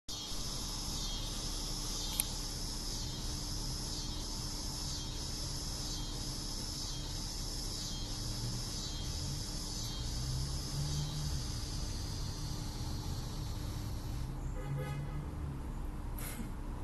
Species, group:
Neotibicen pruinosus, Cicadidae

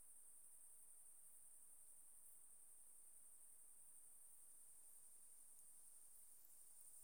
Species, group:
Tettigonia viridissima, Orthoptera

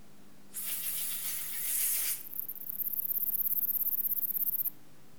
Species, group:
Platycleis escalerai, Orthoptera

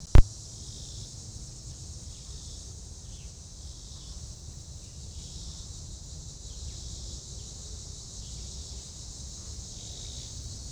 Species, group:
Neotibicen robinsonianus, Cicadidae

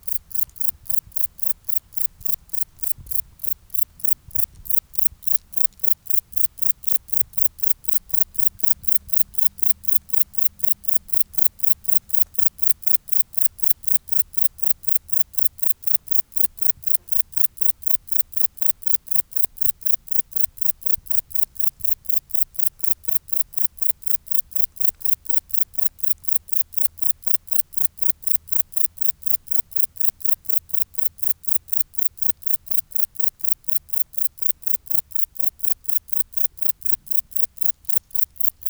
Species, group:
Metrioptera brachyptera, Orthoptera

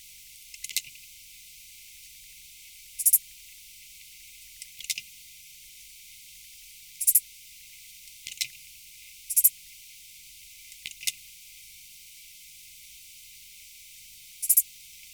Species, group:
Pholidoptera fallax, Orthoptera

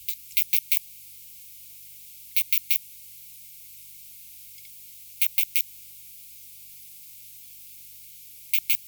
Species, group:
Poecilimon zimmeri, Orthoptera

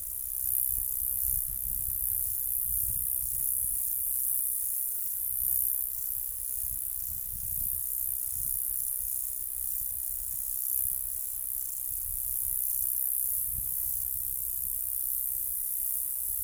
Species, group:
Gampsocleis glabra, Orthoptera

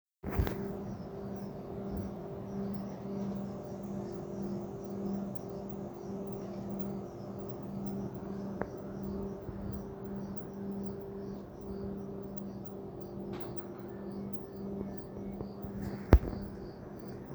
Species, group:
Eumodicogryllus bordigalensis, Orthoptera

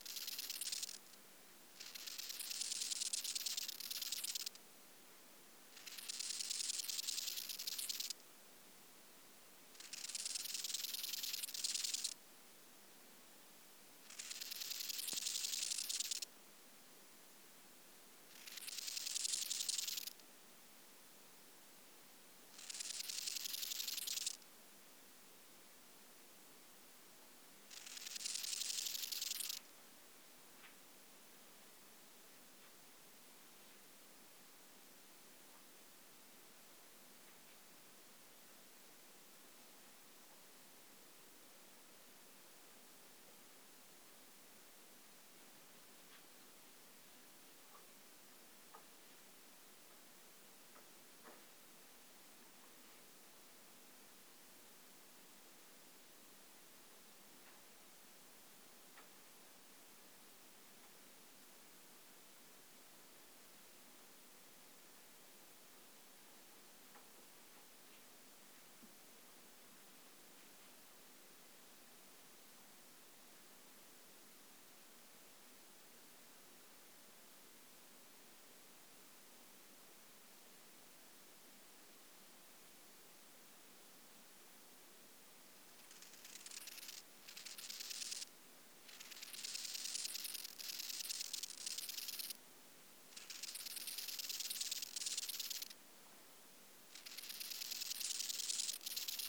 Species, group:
Chorthippus eisentrauti, Orthoptera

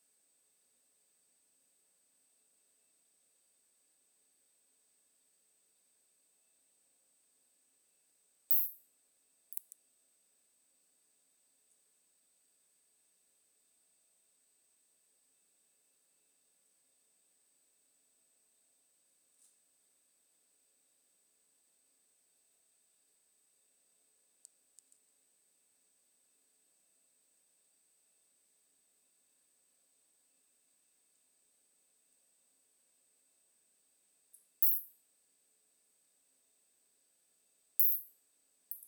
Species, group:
Isophya rhodopensis, Orthoptera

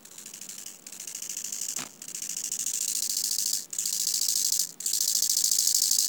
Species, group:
Chorthippus biguttulus, Orthoptera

